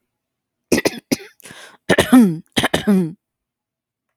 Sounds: Throat clearing